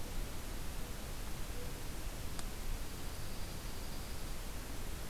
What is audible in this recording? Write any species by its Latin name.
Junco hyemalis